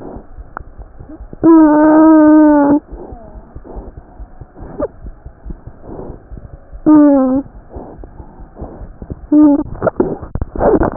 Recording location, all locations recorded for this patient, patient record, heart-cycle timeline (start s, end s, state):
aortic valve (AV)
aortic valve (AV)+mitral valve (MV)
#Age: Infant
#Sex: Male
#Height: nan
#Weight: nan
#Pregnancy status: False
#Murmur: Unknown
#Murmur locations: nan
#Most audible location: nan
#Systolic murmur timing: nan
#Systolic murmur shape: nan
#Systolic murmur grading: nan
#Systolic murmur pitch: nan
#Systolic murmur quality: nan
#Diastolic murmur timing: nan
#Diastolic murmur shape: nan
#Diastolic murmur grading: nan
#Diastolic murmur pitch: nan
#Diastolic murmur quality: nan
#Outcome: Normal
#Campaign: 2015 screening campaign
0.00	2.84	unannotated
2.84	2.90	diastole
2.90	2.98	S1
2.98	3.09	systole
3.09	3.19	S2
3.19	3.32	diastole
3.32	3.42	S1
3.42	3.50	systole
3.50	3.59	S2
3.59	3.75	diastole
3.75	3.81	S1
3.81	3.96	systole
3.96	4.06	S2
4.06	4.18	diastole
4.18	4.30	S1
4.30	4.38	systole
4.38	4.47	S2
4.47	4.59	diastole
4.59	4.67	S1
4.67	4.78	systole
4.78	4.86	S2
4.86	5.02	diastole
5.02	5.12	S1
5.12	5.23	systole
5.23	5.32	S2
5.32	5.44	diastole
5.44	5.54	S1
5.54	5.65	systole
5.65	5.72	S2
5.72	5.87	diastole
5.87	5.96	S1
5.96	6.07	systole
6.07	6.15	S2
6.15	6.30	diastole
6.30	6.37	S1
6.37	6.51	systole
6.51	6.57	S2
6.57	6.69	diastole
6.69	6.87	S1
6.87	6.93	systole
6.93	7.07	S2
7.07	7.54	diastole
7.54	7.65	S1
7.65	7.77	systole
7.77	7.87	S2
7.87	7.97	diastole
7.97	8.03	S1
8.03	8.18	systole
8.18	8.24	S2
8.24	8.39	diastole
8.39	8.46	S1
8.46	8.60	systole
8.60	8.67	S2
8.67	8.80	diastole
8.80	8.86	S1
8.86	9.00	systole
9.00	9.07	S2
9.07	9.21	diastole
9.21	10.96	unannotated